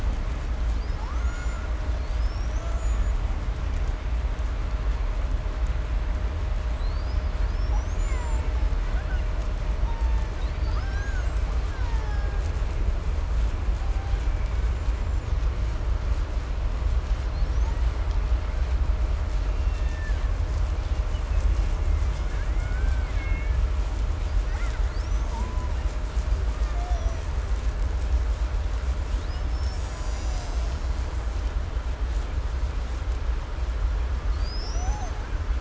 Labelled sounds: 0.7	1.8	killer whale, Bigg's (transient), call T01, 0.48 to 7.5 kHz
1.9	3.6	killer whale, 0.77 to 8.0 kHz
6.6	9.4	killer whale, 0.69 to 8.0 kHz
9.6	10.5	killer whale, Bigg's (transient), call T02, 0.37 to 8.0 kHz
10.4	11.6	killer whale, Bigg's (transient), call T01, 0.37 to 8.0 kHz
11.5	12.8	killer whale, Bigg's (transient), 0.67 to 8.0 kHz
13.6	14.3	killer whale, Bigg's (transient), call T01, 0.54 to 7.6 kHz
14.2	15.4	killer whale, 0.61 to 7.6 kHz
17.1	18.1	killer whale, 0.64 to 8.0 kHz
18.0	18.7	killer whale, Bigg's (transient), 0.62 to 5.6 kHz
19.2	20.4	killer whale, Bigg's (transient), call T02, 0.76 to 7.1 kHz
20.7	23.7	killer whale, 0.96 to 4.2 kHz
24.2	26.0	killer whale, 0.67 to 8.0 kHz
26.3	27.4	killer whale, 0.42 to 6.4 kHz
28.9	31.6	killer whale, Bigg's (transient), 0.72 to 8.0 kHz
34.0	35.5	killer whale, 0.38 to 7.7 kHz

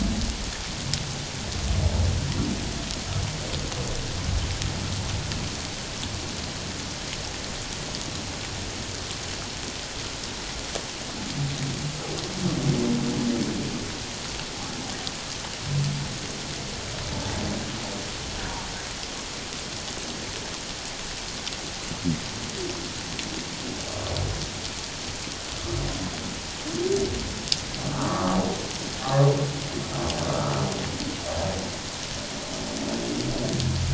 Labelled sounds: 27.8	28.4	humpback whale, 1.0 to 1.4 kHz

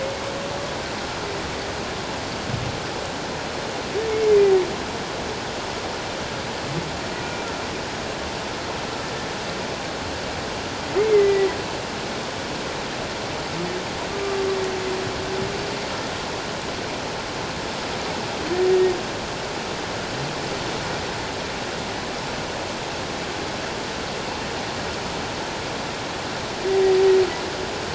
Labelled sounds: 11.0	11.5	humpback whale, 1.9 to 2.2 kHz
14.1	14.4	humpback whale, 1.1 to 1.2 kHz

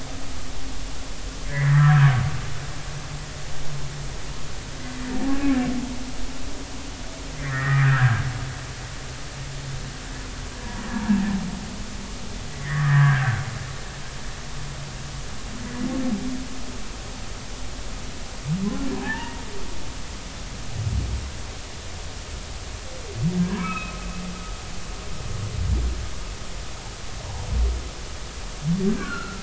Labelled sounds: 1.4	2.1	humpback whale, 0.99 to 2.2 kHz
7.4	8.2	humpback whale, 1.2 to 2.1 kHz
12.6	13.4	humpback whale, 1.4 to 2.0 kHz
18.9	19.4	humpback whale, 0.80 to 2.0 kHz
23.4	24.0	humpback whale, 1.1 to 2.7 kHz
28.9	29.4	humpback whale, 1.3 to 1.8 kHz

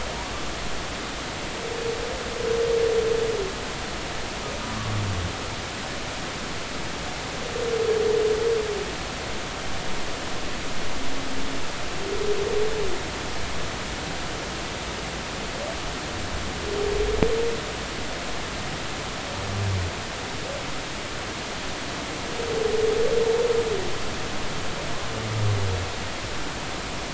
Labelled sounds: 4.7	5.0	humpback whale, 1.1 to 1.2 kHz

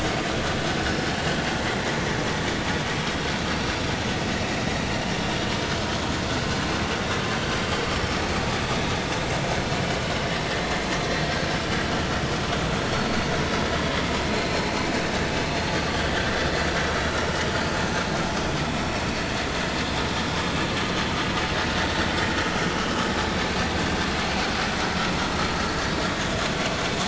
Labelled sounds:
0.8	1.1	vessel noise, 5.2 to 5.5 kHz
14.3	14.8	vessel noise, 4.1 to 4.4 kHz
17.0	17.3	vessel noise, 3.8 to 4.0 kHz
18.8	19.1	vessel noise, 5.3 to 5.6 kHz

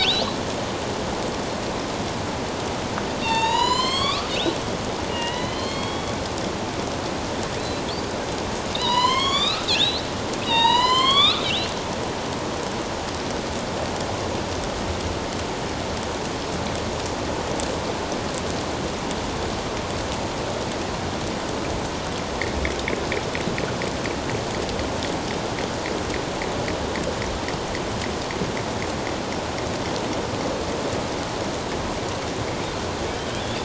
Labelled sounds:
3.2	4.3	killer whale, northern resident, A clan, AB subclan, 0.84 to 8.0 kHz
5.1	6.2	killer whale, northern resident, A clan, AB subclan, 0.91 to 4.4 kHz
8.7	11.7	killer whale, northern resident, A clan, AB subclan, 0.84 to 7.8 kHz
33.4	33.6	killer whale, northern resident, A clan, AB subclan, 3.3 to 3.7 kHz

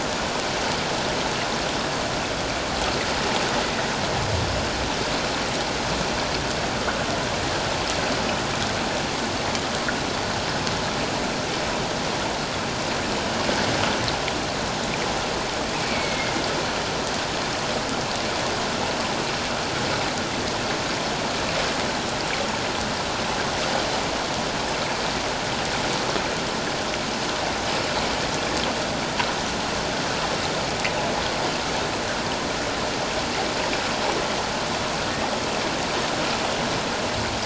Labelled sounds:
15.8	16.3	humpback whale, 2.1 to 2.4 kHz

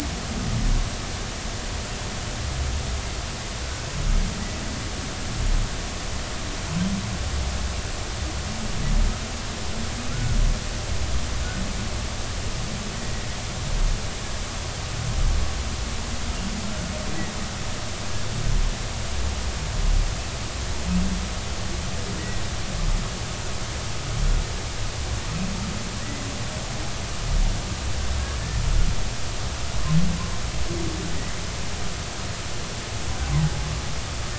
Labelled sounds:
10.1	10.4	humpback whale, 1.3 to 1.6 kHz

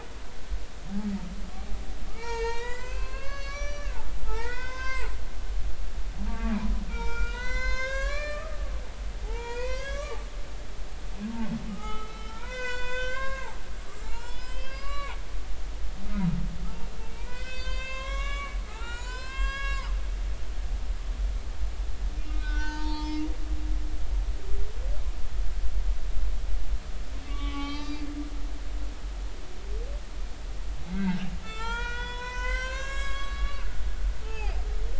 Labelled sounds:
2.1	5.1	humpback whale, 0.80 to 7.6 kHz
6.3	10.2	humpback whale, 0.80 to 6.8 kHz
11.7	15.2	humpback whale, 0.80 to 7.6 kHz
17.1	20.2	humpback whale, 0.80 to 7.7 kHz
22.4	23.3	humpback whale, 0.83 to 4.9 kHz
27.3	28.1	humpback whale, 0.80 to 6.0 kHz
30.9	33.7	humpback whale, 0.83 to 7.8 kHz
34.2	34.6	humpback whale, 0.80 to 3.1 kHz

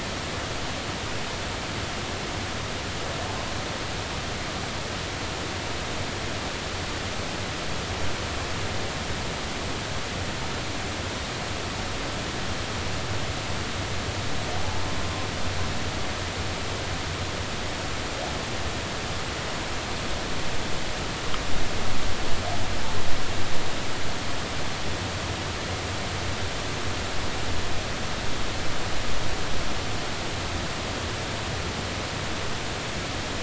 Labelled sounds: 14.6	14.8	humpback whale, 0.80 to 0.93 kHz

